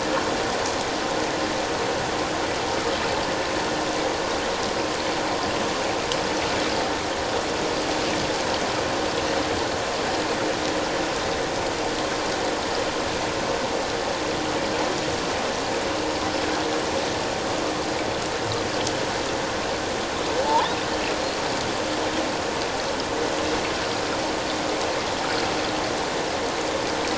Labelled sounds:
20.4	20.7	killer whale, offshore, 0.81 to 1.1 kHz

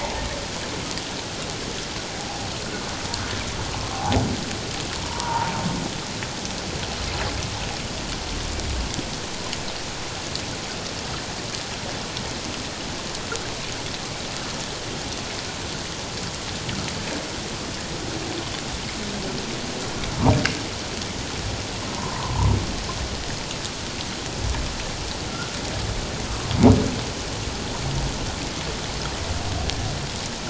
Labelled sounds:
3.9	4.2	humpback whale, 0.78 to 1.0 kHz
5.0	5.5	humpback whale, 0.78 to 1.3 kHz
21.9	22.5	humpback whale, 0.81 to 1.1 kHz

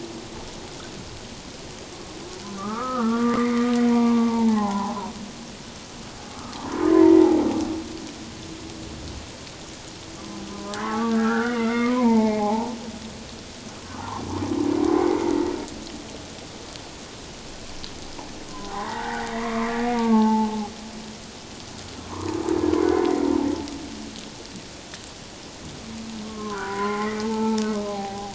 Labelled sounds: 2.6	5.1	humpback whale, 0.78 to 2.2 kHz
6.9	7.5	humpback whale, 0.78 to 2.2 kHz
10.5	12.7	humpback whale, 0.78 to 3.0 kHz
14.0	14.2	humpback whale, 0.78 to 1.2 kHz
14.9	15.3	humpback whale, 2.0 to 2.2 kHz
18.5	20.6	humpback whale, 0.78 to 2.0 kHz
22.1	22.4	humpback whale, 0.88 to 1.3 kHz
22.8	23.1	humpback whale, 2.0 to 2.2 kHz
26.2	27.6	humpback whale, 0.84 to 2.5 kHz
27.9	28.3	humpback whale, 0.78 to 0.84 kHz

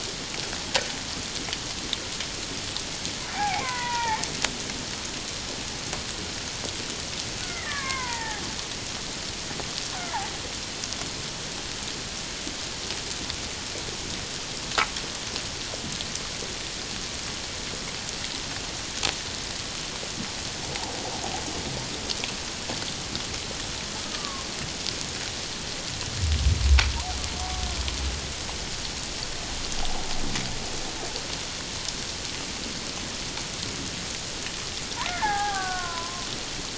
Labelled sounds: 3.3	4.3	killer whale, Bigg's (transient), 0.78 to 2.5 kHz
7.4	8.4	killer whale, Bigg's (transient), 0.78 to 2.4 kHz
24.1	24.5	killer whale, Bigg's (transient), 1.0 to 1.3 kHz
35.1	36.3	killer whale, Bigg's (transient), 0.78 to 1.9 kHz

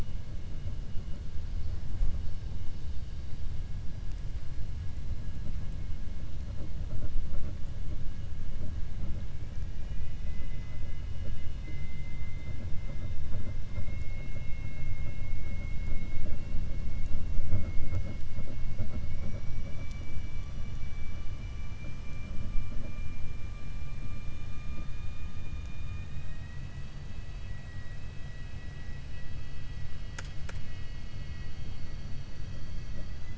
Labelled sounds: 9.4	11.0	vessel noise, 1.3 to 3.5 kHz
11.2	12.6	vessel noise, 2.0 to 3.3 kHz

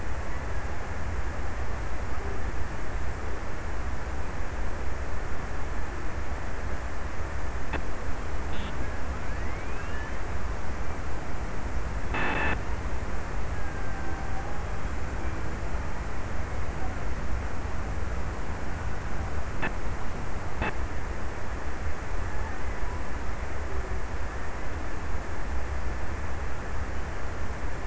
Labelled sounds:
13.1	15.0	killer whale, Bigg's (transient), 0.48 to 2.0 kHz

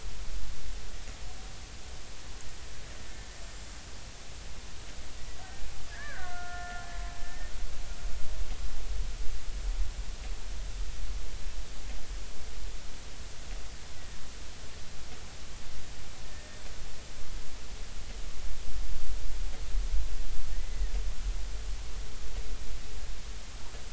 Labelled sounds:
5.4	6.8	killer whale, Bigg's (transient), 1.3 to 1.9 kHz
16.2	16.6	killer whale, Bigg's (transient), 1.7 to 1.9 kHz

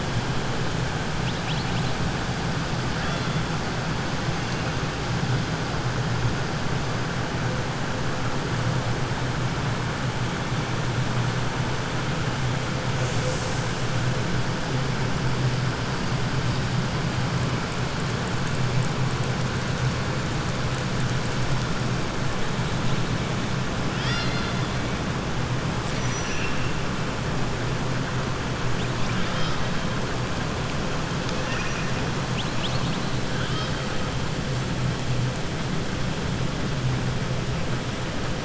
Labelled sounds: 26.0	26.7	killer whale, 1.7 to 3.0 kHz
29.0	29.7	killer whale, 1.3 to 5.8 kHz
31.3	31.9	killer whale, 0.99 to 3.0 kHz
33.3	33.8	killer whale, 1.3 to 5.2 kHz

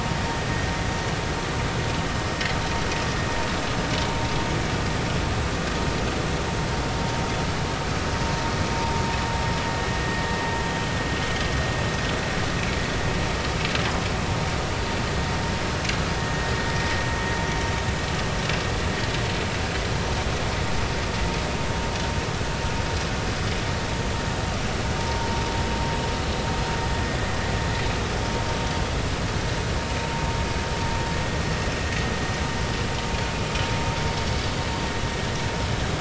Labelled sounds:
25.0	25.3	vessel noise, 0.90 to 0.99 kHz

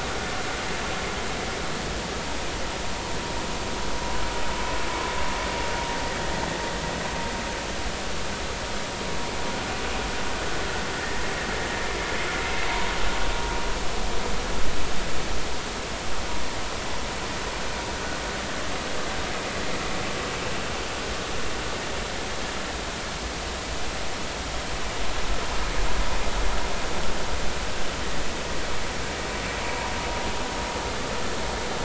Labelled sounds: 29.6	29.9	vessel noise, 0.86 to 1.0 kHz

